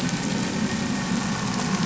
{"label": "anthrophony, boat engine", "recorder": "SoundTrap 500"}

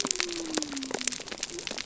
{"label": "biophony", "recorder": "SoundTrap 300"}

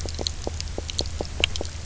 {"label": "biophony, knock croak", "recorder": "SoundTrap 300"}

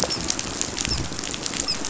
{"label": "biophony, dolphin", "recorder": "SoundTrap 500"}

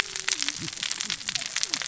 {"label": "biophony, cascading saw", "recorder": "SoundTrap 600 or HydroMoth"}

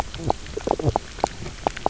{"label": "biophony, knock croak", "recorder": "SoundTrap 300"}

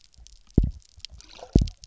{"label": "biophony, double pulse", "recorder": "SoundTrap 300"}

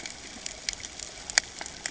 {"label": "ambient", "recorder": "HydroMoth"}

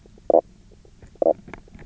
{"label": "biophony, knock croak", "recorder": "SoundTrap 300"}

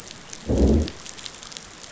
{"label": "biophony, growl", "recorder": "SoundTrap 500"}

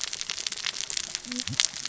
{"label": "biophony, cascading saw", "recorder": "SoundTrap 600 or HydroMoth"}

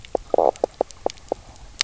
{"label": "biophony, knock croak", "recorder": "SoundTrap 300"}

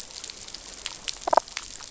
{"label": "biophony, damselfish", "recorder": "SoundTrap 500"}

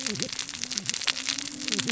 {"label": "biophony, cascading saw", "recorder": "SoundTrap 600 or HydroMoth"}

